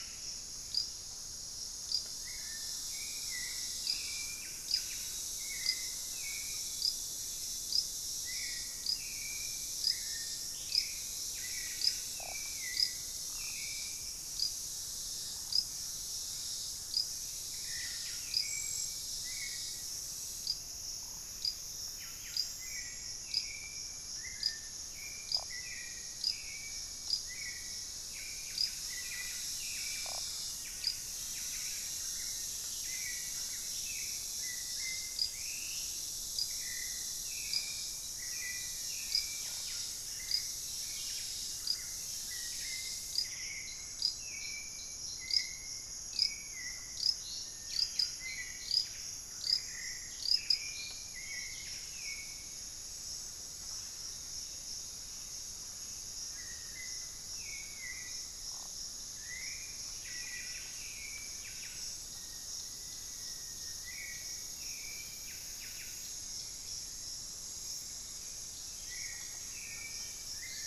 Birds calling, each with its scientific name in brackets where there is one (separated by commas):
Buff-breasted Wren (Cantorchilus leucotis), Hauxwell's Thrush (Turdus hauxwelli), Pygmy Antwren (Myrmotherula brachyura), Black-faced Antthrush (Formicarius analis)